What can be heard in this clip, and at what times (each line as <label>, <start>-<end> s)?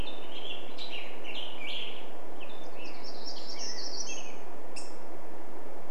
Black-headed Grosbeak song, 0-6 s
Hermit Warbler song, 2-6 s
Black-headed Grosbeak call, 4-6 s